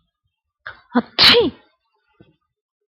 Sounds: Sneeze